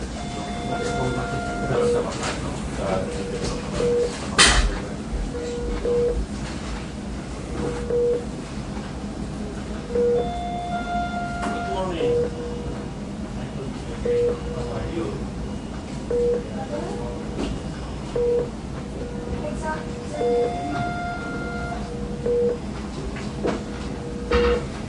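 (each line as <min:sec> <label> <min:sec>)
0:00.0 A steady, regular beeping of a cardiac monitor. 0:24.9
0:00.7 Two men are speaking quietly. 0:06.3
0:04.2 A damp thump. 0:04.9
0:11.4 A male voice speaks steadily. 0:19.1
0:16.5 A higher-pitched, lighter voice is speaking. 0:21.0
0:24.2 A faint reverberation. 0:24.9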